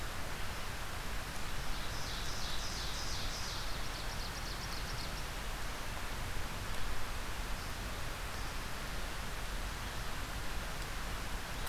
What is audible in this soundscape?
Ovenbird